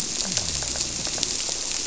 {"label": "biophony", "recorder": "SoundTrap 300"}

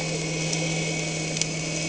{"label": "anthrophony, boat engine", "recorder": "HydroMoth"}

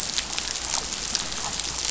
{"label": "biophony", "recorder": "SoundTrap 500"}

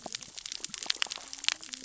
{"label": "biophony, cascading saw", "recorder": "SoundTrap 600 or HydroMoth"}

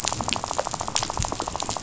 {"label": "biophony, rattle", "recorder": "SoundTrap 500"}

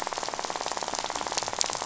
{"label": "biophony, rattle", "recorder": "SoundTrap 500"}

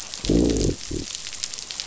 {"label": "biophony, growl", "recorder": "SoundTrap 500"}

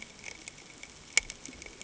{"label": "ambient", "recorder": "HydroMoth"}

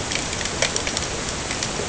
{"label": "ambient", "recorder": "HydroMoth"}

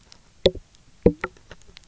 {"label": "biophony, knock croak", "recorder": "SoundTrap 300"}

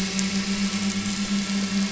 {"label": "anthrophony, boat engine", "recorder": "SoundTrap 500"}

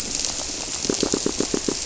{"label": "biophony, squirrelfish (Holocentrus)", "recorder": "SoundTrap 300"}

